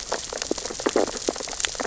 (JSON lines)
{"label": "biophony, sea urchins (Echinidae)", "recorder": "SoundTrap 600 or HydroMoth"}